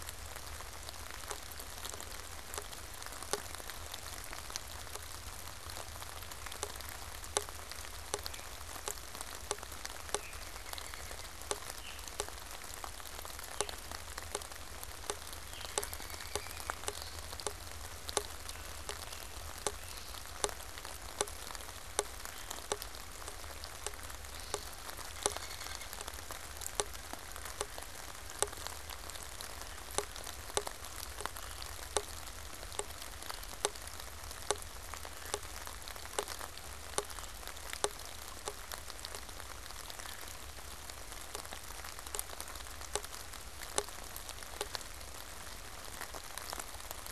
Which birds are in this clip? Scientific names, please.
Seiurus aurocapilla, Turdus migratorius, unidentified bird, Myiarchus crinitus